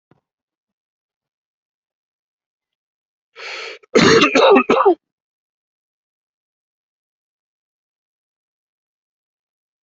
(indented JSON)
{
  "expert_labels": [
    {
      "quality": "good",
      "cough_type": "wet",
      "dyspnea": false,
      "wheezing": false,
      "stridor": false,
      "choking": false,
      "congestion": false,
      "nothing": true,
      "diagnosis": "obstructive lung disease",
      "severity": "mild"
    }
  ],
  "age": 31,
  "gender": "male",
  "respiratory_condition": false,
  "fever_muscle_pain": false,
  "status": "symptomatic"
}